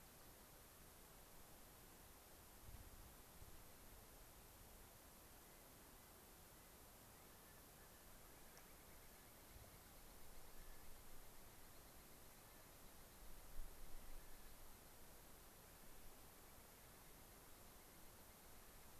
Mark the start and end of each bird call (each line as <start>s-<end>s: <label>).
5.3s-6.8s: Clark's Nutcracker (Nucifraga columbiana)
7.1s-8.6s: Clark's Nutcracker (Nucifraga columbiana)
8.9s-9.3s: Clark's Nutcracker (Nucifraga columbiana)
10.4s-10.8s: Clark's Nutcracker (Nucifraga columbiana)
12.3s-12.7s: Clark's Nutcracker (Nucifraga columbiana)
14.0s-14.5s: Clark's Nutcracker (Nucifraga columbiana)